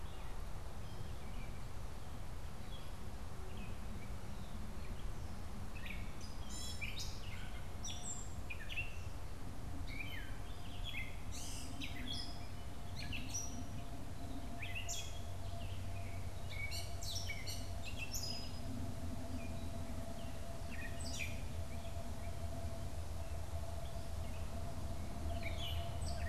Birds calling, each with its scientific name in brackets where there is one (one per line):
Gray Catbird (Dumetella carolinensis)